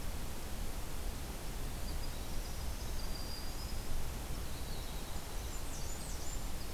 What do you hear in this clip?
Winter Wren, Black-throated Green Warbler, Blackburnian Warbler